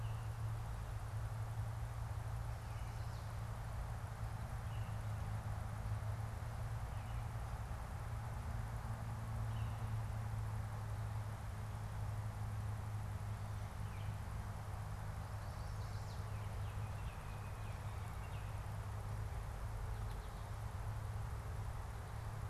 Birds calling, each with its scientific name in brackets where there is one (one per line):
Baltimore Oriole (Icterus galbula)
Chestnut-sided Warbler (Setophaga pensylvanica)